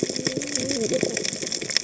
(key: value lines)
label: biophony, cascading saw
recorder: HydroMoth